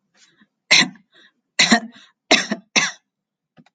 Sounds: Throat clearing